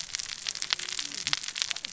{"label": "biophony, cascading saw", "recorder": "SoundTrap 600 or HydroMoth"}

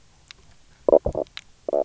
{"label": "biophony, knock croak", "recorder": "SoundTrap 300"}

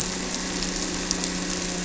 {"label": "anthrophony, boat engine", "recorder": "SoundTrap 300"}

